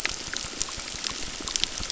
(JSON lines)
{"label": "biophony, crackle", "recorder": "SoundTrap 600"}